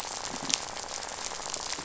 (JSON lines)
{"label": "biophony, rattle", "recorder": "SoundTrap 500"}